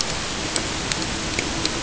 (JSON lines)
{"label": "ambient", "recorder": "HydroMoth"}